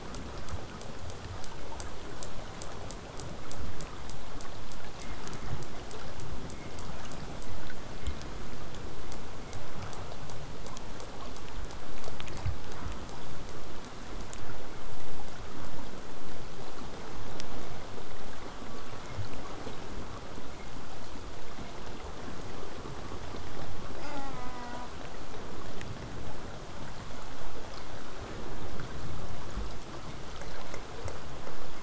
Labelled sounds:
24.0	24.9	killer whale, southern resident, J pod, call S04, 0.12 to 2.8 kHz

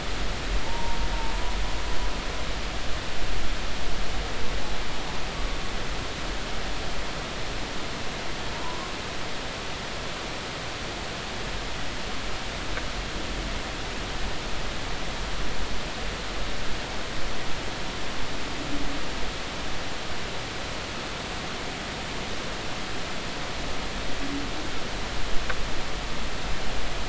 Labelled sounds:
0.6	1.0	humpback whale, 0.83 to 1.0 kHz
8.5	8.8	humpback whale, 0.90 to 1.1 kHz

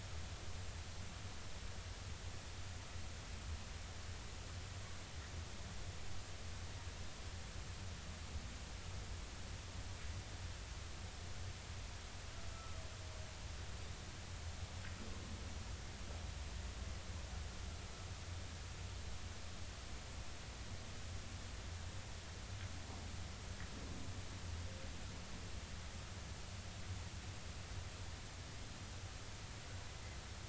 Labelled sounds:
12.5	12.8	humpback whale, 1.1 to 1.4 kHz

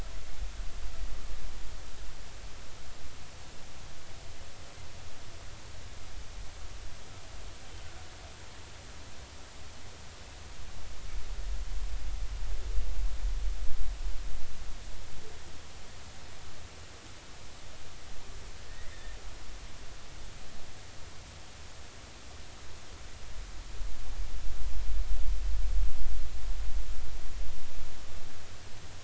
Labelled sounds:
18.7	19.2	humpback whale, 1.7 to 2.1 kHz

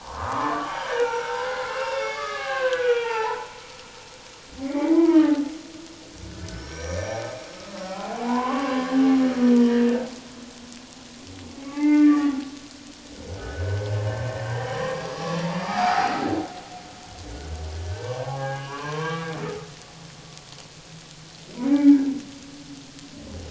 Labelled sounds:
0.0	3.5	humpback whale, 0.78 to 6.1 kHz
4.6	5.5	humpback whale, 0.78 to 2.3 kHz
6.5	8.9	humpback whale, 0.78 to 6.0 kHz
9.6	9.9	humpback whale, 1.6 to 2.0 kHz
11.6	12.4	humpback whale, 0.81 to 2.7 kHz
13.4	13.9	humpback whale, 1.4 to 1.7 kHz
14.4	16.1	humpback whale, 0.78 to 5.0 kHz
17.3	19.3	humpback whale, 0.78 to 2.8 kHz
21.6	22.0	humpback whale, 2.1 to 2.4 kHz

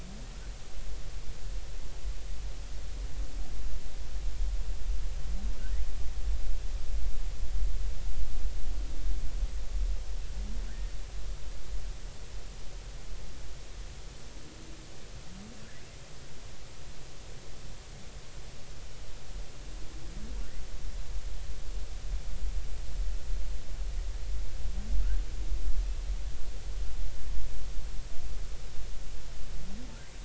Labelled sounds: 10.7	10.9	humpback whale, 1.4 to 1.9 kHz

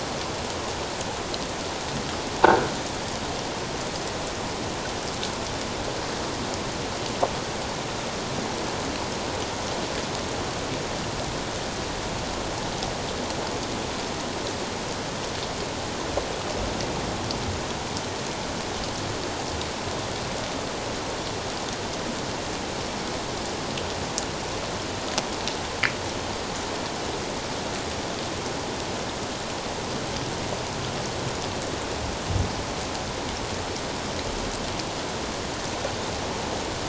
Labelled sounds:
2.4	2.7	croaking sound likely from a nearby submerged object, 1.4 to 1.7 kHz

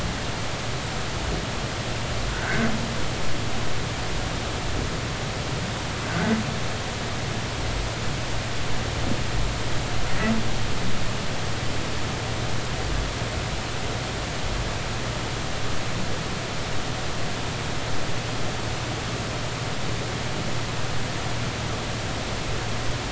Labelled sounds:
2.3	2.7	humpback whale, 1.4 to 1.8 kHz

